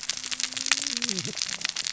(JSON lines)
{"label": "biophony, cascading saw", "recorder": "SoundTrap 600 or HydroMoth"}